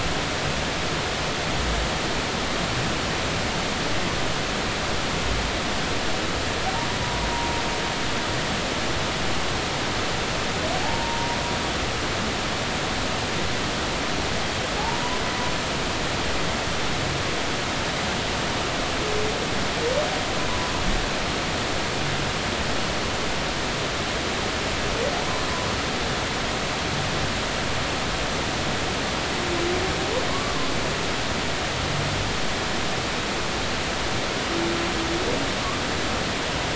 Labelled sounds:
10.8	11.4	humpback whale, 0.80 to 0.99 kHz
14.8	15.2	humpback whale, 0.80 to 1.1 kHz
25.1	25.4	humpback whale, 0.80 to 1.1 kHz
30.3	30.6	humpback whale, 1.0 to 1.2 kHz

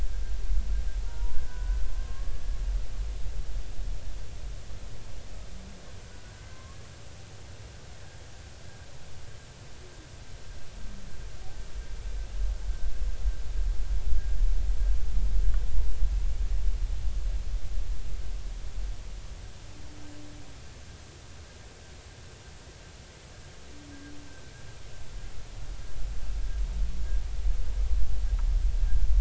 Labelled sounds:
1.0	2.4	humpback whale, 0.83 to 1.6 kHz
6.0	6.8	humpback whale, 0.99 to 1.6 kHz

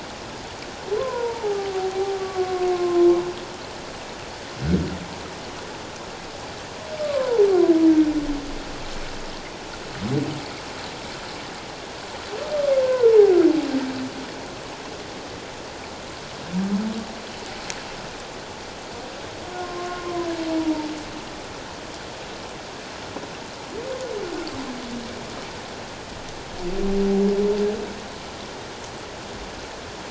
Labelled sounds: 1.0	3.1	humpback whale, 0.78 to 1.2 kHz
7.0	7.5	humpback whale, 0.78 to 1.2 kHz
12.8	13.4	humpback whale, 0.78 to 1.6 kHz
19.6	20.9	humpback whale, 0.84 to 1.1 kHz

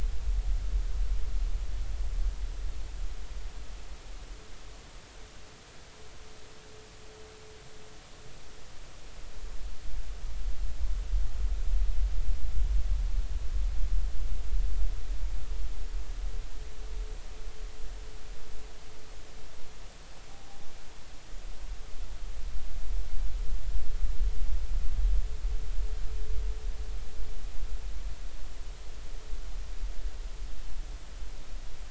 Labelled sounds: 20.3	20.6	vessel noise, 0.80 to 0.86 kHz

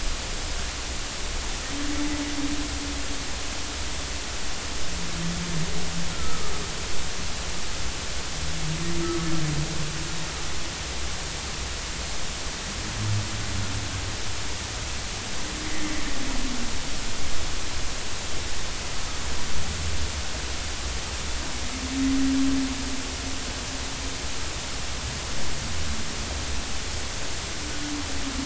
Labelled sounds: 6.1	6.5	humpback whale, 1.2 to 1.4 kHz
9.0	9.3	humpback whale, 1.2 to 1.3 kHz

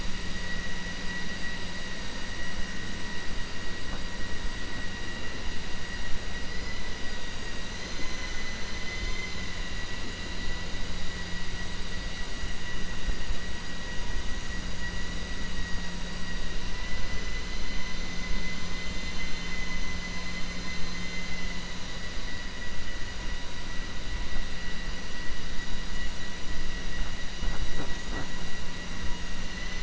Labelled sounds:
20.6	21.3	vessel noise, 1.5 to 5.2 kHz

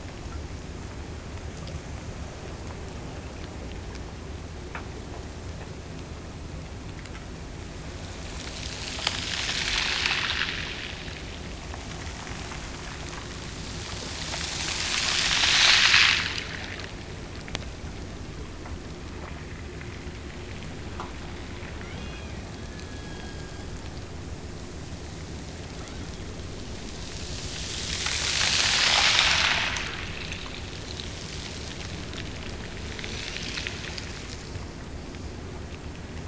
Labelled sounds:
21.8	24.0	killer whale, Bigg's (transient), Gulf of Alaska transient, 1.4 to 6.2 kHz

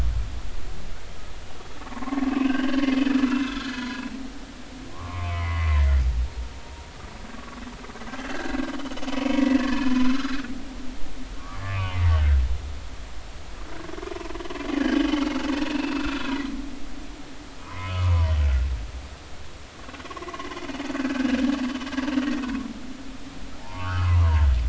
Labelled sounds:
1.8	4.5	humpback whale, 0.90 to 3.1 kHz
4.9	5.9	humpback whale, 0.86 to 2.6 kHz
7.3	7.6	humpback whale, 1.1 to 1.2 kHz
9.2	10.4	humpback whale, 0.96 to 2.3 kHz
11.4	12.4	humpback whale, 1.1 to 1.6 kHz
14.7	15.4	humpback whale, 1.5 to 3.2 kHz
15.7	16.3	humpback whale, 1.2 to 2.8 kHz
17.6	18.3	humpback whale, 0.93 to 1.4 kHz
19.7	20.5	humpback whale, 0.96 to 1.2 kHz
20.9	21.5	humpback whale, 1.5 to 1.8 kHz
23.6	24.5	humpback whale, 0.80 to 3.2 kHz

